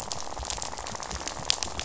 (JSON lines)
{"label": "biophony, rattle", "recorder": "SoundTrap 500"}